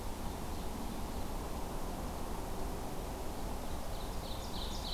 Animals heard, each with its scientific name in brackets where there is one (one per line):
Ovenbird (Seiurus aurocapilla)